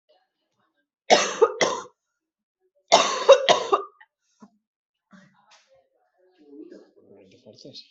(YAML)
expert_labels:
- quality: good
  cough_type: wet
  dyspnea: false
  wheezing: false
  stridor: false
  choking: false
  congestion: false
  nothing: true
  diagnosis: upper respiratory tract infection
  severity: unknown
age: 32
gender: female
respiratory_condition: false
fever_muscle_pain: true
status: symptomatic